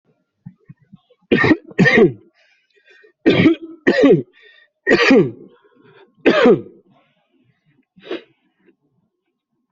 {"expert_labels": [{"quality": "ok", "cough_type": "dry", "dyspnea": true, "wheezing": false, "stridor": false, "choking": false, "congestion": true, "nothing": false, "diagnosis": "COVID-19", "severity": "mild"}], "age": 55, "gender": "male", "respiratory_condition": true, "fever_muscle_pain": true, "status": "healthy"}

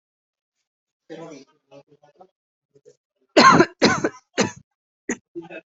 {"expert_labels": [{"quality": "good", "cough_type": "dry", "dyspnea": false, "wheezing": false, "stridor": false, "choking": false, "congestion": false, "nothing": true, "diagnosis": "upper respiratory tract infection", "severity": "mild"}], "age": 33, "gender": "female", "respiratory_condition": false, "fever_muscle_pain": true, "status": "symptomatic"}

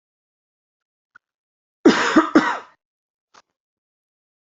{"expert_labels": [{"quality": "good", "cough_type": "dry", "dyspnea": false, "wheezing": false, "stridor": false, "choking": false, "congestion": false, "nothing": true, "diagnosis": "healthy cough", "severity": "pseudocough/healthy cough"}], "age": 35, "gender": "male", "respiratory_condition": false, "fever_muscle_pain": false, "status": "symptomatic"}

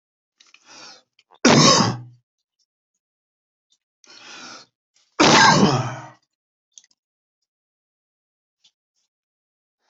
{"expert_labels": [{"quality": "poor", "cough_type": "unknown", "dyspnea": false, "wheezing": false, "stridor": false, "choking": false, "congestion": false, "nothing": true, "diagnosis": "lower respiratory tract infection", "severity": "unknown"}], "age": 59, "gender": "male", "respiratory_condition": false, "fever_muscle_pain": false, "status": "COVID-19"}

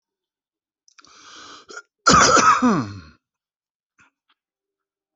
{"expert_labels": [{"quality": "good", "cough_type": "wet", "dyspnea": false, "wheezing": false, "stridor": false, "choking": false, "congestion": false, "nothing": true, "diagnosis": "healthy cough", "severity": "pseudocough/healthy cough"}], "age": 50, "gender": "male", "respiratory_condition": false, "fever_muscle_pain": false, "status": "COVID-19"}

